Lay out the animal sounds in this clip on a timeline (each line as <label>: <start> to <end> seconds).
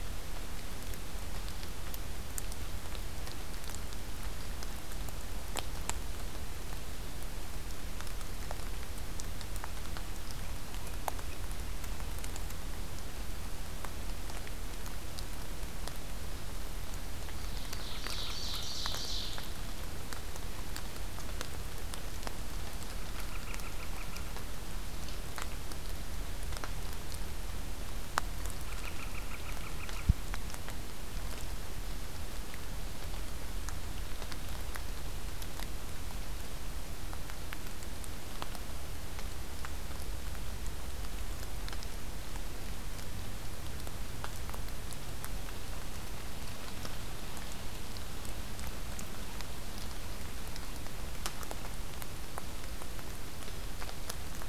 Ovenbird (Seiurus aurocapilla): 17.2 to 19.5 seconds
Northern Flicker (Colaptes auratus): 23.0 to 24.3 seconds
Northern Flicker (Colaptes auratus): 28.6 to 30.1 seconds